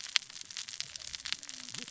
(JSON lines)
{"label": "biophony, cascading saw", "recorder": "SoundTrap 600 or HydroMoth"}